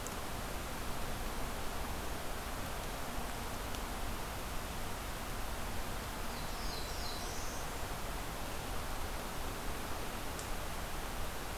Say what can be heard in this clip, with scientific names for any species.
Setophaga caerulescens, Setophaga fusca